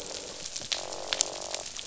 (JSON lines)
{"label": "biophony, croak", "recorder": "SoundTrap 500"}